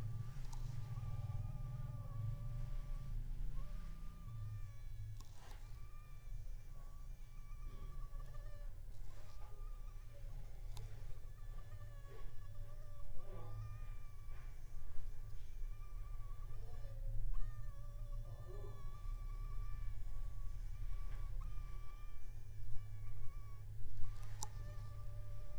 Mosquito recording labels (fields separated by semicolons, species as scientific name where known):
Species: Anopheles funestus s.s.; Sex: female; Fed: unfed; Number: one; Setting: cup